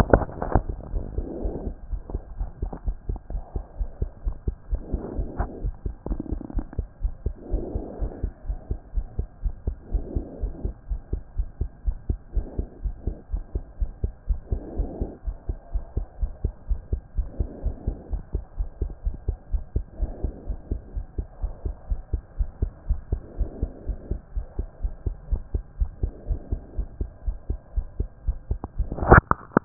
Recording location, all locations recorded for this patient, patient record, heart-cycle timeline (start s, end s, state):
pulmonary valve (PV)
aortic valve (AV)+pulmonary valve (PV)+tricuspid valve (TV)+mitral valve (MV)
#Age: Child
#Sex: Male
#Height: 123.0 cm
#Weight: 22.4 kg
#Pregnancy status: False
#Murmur: Absent
#Murmur locations: nan
#Most audible location: nan
#Systolic murmur timing: nan
#Systolic murmur shape: nan
#Systolic murmur grading: nan
#Systolic murmur pitch: nan
#Systolic murmur quality: nan
#Diastolic murmur timing: nan
#Diastolic murmur shape: nan
#Diastolic murmur grading: nan
#Diastolic murmur pitch: nan
#Diastolic murmur quality: nan
#Outcome: Normal
#Campaign: 2014 screening campaign
0.00	1.77	unannotated
1.77	1.90	diastole
1.90	2.02	S1
2.02	2.12	systole
2.12	2.22	S2
2.22	2.38	diastole
2.38	2.50	S1
2.50	2.62	systole
2.62	2.70	S2
2.70	2.86	diastole
2.86	2.96	S1
2.96	3.08	systole
3.08	3.18	S2
3.18	3.32	diastole
3.32	3.42	S1
3.42	3.54	systole
3.54	3.64	S2
3.64	3.78	diastole
3.78	3.90	S1
3.90	4.00	systole
4.00	4.10	S2
4.10	4.24	diastole
4.24	4.36	S1
4.36	4.46	systole
4.46	4.56	S2
4.56	4.70	diastole
4.70	4.82	S1
4.82	4.92	systole
4.92	5.00	S2
5.00	5.16	diastole
5.16	5.28	S1
5.28	5.38	systole
5.38	5.48	S2
5.48	5.62	diastole
5.62	5.74	S1
5.74	5.84	systole
5.84	5.94	S2
5.94	6.08	diastole
6.08	6.20	S1
6.20	6.30	systole
6.30	6.40	S2
6.40	6.54	diastole
6.54	6.66	S1
6.66	6.78	systole
6.78	6.86	S2
6.86	7.02	diastole
7.02	7.14	S1
7.14	7.24	systole
7.24	7.34	S2
7.34	7.52	diastole
7.52	7.64	S1
7.64	7.74	systole
7.74	7.82	S2
7.82	8.00	diastole
8.00	8.12	S1
8.12	8.22	systole
8.22	8.32	S2
8.32	8.48	diastole
8.48	8.58	S1
8.58	8.70	systole
8.70	8.78	S2
8.78	8.94	diastole
8.94	9.06	S1
9.06	9.18	systole
9.18	9.26	S2
9.26	9.44	diastole
9.44	9.54	S1
9.54	9.66	systole
9.66	9.76	S2
9.76	9.92	diastole
9.92	10.04	S1
10.04	10.14	systole
10.14	10.24	S2
10.24	10.42	diastole
10.42	10.52	S1
10.52	10.64	systole
10.64	10.74	S2
10.74	10.90	diastole
10.90	11.00	S1
11.00	11.12	systole
11.12	11.22	S2
11.22	11.38	diastole
11.38	11.48	S1
11.48	11.60	systole
11.60	11.70	S2
11.70	11.86	diastole
11.86	11.96	S1
11.96	12.08	systole
12.08	12.18	S2
12.18	12.34	diastole
12.34	12.46	S1
12.46	12.58	systole
12.58	12.66	S2
12.66	12.84	diastole
12.84	12.94	S1
12.94	13.06	systole
13.06	13.16	S2
13.16	13.32	diastole
13.32	13.44	S1
13.44	13.54	systole
13.54	13.64	S2
13.64	13.80	diastole
13.80	13.90	S1
13.90	14.02	systole
14.02	14.12	S2
14.12	14.28	diastole
14.28	14.40	S1
14.40	14.50	systole
14.50	14.60	S2
14.60	14.76	diastole
14.76	14.88	S1
14.88	15.00	systole
15.00	15.10	S2
15.10	15.26	diastole
15.26	15.36	S1
15.36	15.48	systole
15.48	15.58	S2
15.58	15.74	diastole
15.74	15.84	S1
15.84	15.96	systole
15.96	16.06	S2
16.06	16.20	diastole
16.20	16.32	S1
16.32	16.42	systole
16.42	16.52	S2
16.52	16.68	diastole
16.68	16.80	S1
16.80	16.92	systole
16.92	17.00	S2
17.00	17.16	diastole
17.16	17.28	S1
17.28	17.38	systole
17.38	17.48	S2
17.48	17.64	diastole
17.64	17.74	S1
17.74	17.86	systole
17.86	17.96	S2
17.96	18.12	diastole
18.12	18.22	S1
18.22	18.34	systole
18.34	18.42	S2
18.42	18.58	diastole
18.58	18.68	S1
18.68	18.80	systole
18.80	18.90	S2
18.90	19.06	diastole
19.06	19.16	S1
19.16	19.26	systole
19.26	19.36	S2
19.36	19.52	diastole
19.52	19.62	S1
19.62	19.74	systole
19.74	19.84	S2
19.84	20.00	diastole
20.00	20.12	S1
20.12	20.22	systole
20.22	20.32	S2
20.32	20.48	diastole
20.48	20.58	S1
20.58	20.70	systole
20.70	20.80	S2
20.80	20.96	diastole
20.96	21.06	S1
21.06	21.18	systole
21.18	21.26	S2
21.26	21.42	diastole
21.42	21.52	S1
21.52	21.64	systole
21.64	21.74	S2
21.74	21.90	diastole
21.90	22.00	S1
22.00	22.12	systole
22.12	22.22	S2
22.22	22.38	diastole
22.38	22.50	S1
22.50	22.60	systole
22.60	22.70	S2
22.70	22.88	diastole
22.88	23.00	S1
23.00	23.10	systole
23.10	23.20	S2
23.20	23.38	diastole
23.38	23.50	S1
23.50	23.60	systole
23.60	23.70	S2
23.70	23.88	diastole
23.88	23.98	S1
23.98	24.10	systole
24.10	24.20	S2
24.20	24.36	diastole
24.36	24.46	S1
24.46	24.58	systole
24.58	24.68	S2
24.68	24.82	diastole
24.82	24.94	S1
24.94	25.06	systole
25.06	25.14	S2
25.14	25.30	diastole
25.30	25.42	S1
25.42	25.54	systole
25.54	25.62	S2
25.62	25.80	diastole
25.80	25.90	S1
25.90	26.02	systole
26.02	26.12	S2
26.12	26.28	diastole
26.28	26.40	S1
26.40	26.50	systole
26.50	26.60	S2
26.60	26.78	diastole
26.78	26.88	S1
26.88	27.00	systole
27.00	27.10	S2
27.10	27.26	diastole
27.26	27.36	S1
27.36	27.48	systole
27.48	27.58	S2
27.58	27.76	diastole
27.76	27.86	S1
27.86	27.98	systole
27.98	28.08	S2
28.08	28.26	diastole
28.26	29.65	unannotated